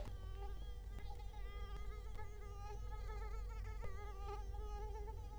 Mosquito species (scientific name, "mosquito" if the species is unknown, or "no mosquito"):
Culex quinquefasciatus